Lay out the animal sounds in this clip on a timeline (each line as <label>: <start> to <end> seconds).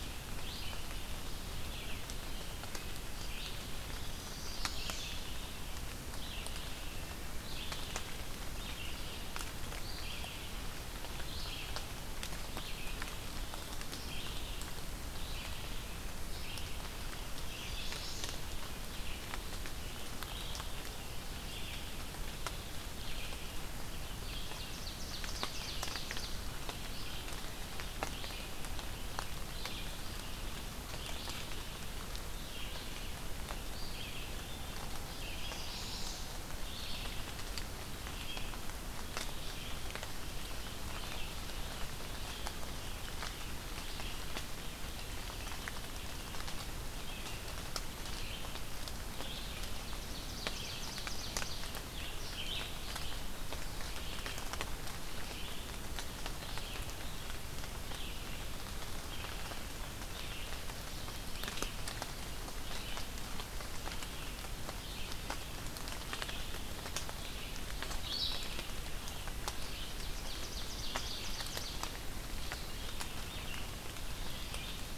Red-eyed Vireo (Vireo olivaceus): 0.0 to 47.5 seconds
Chestnut-sided Warbler (Setophaga pensylvanica): 3.9 to 5.2 seconds
Chestnut-sided Warbler (Setophaga pensylvanica): 17.2 to 18.4 seconds
Ovenbird (Seiurus aurocapilla): 24.3 to 26.7 seconds
Chestnut-sided Warbler (Setophaga pensylvanica): 35.2 to 36.4 seconds
Red-eyed Vireo (Vireo olivaceus): 47.9 to 75.0 seconds
Ovenbird (Seiurus aurocapilla): 49.5 to 51.8 seconds
Ovenbird (Seiurus aurocapilla): 69.6 to 72.1 seconds